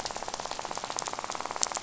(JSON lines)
{"label": "biophony, rattle", "recorder": "SoundTrap 500"}